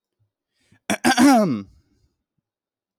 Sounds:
Throat clearing